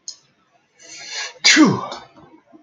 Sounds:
Sneeze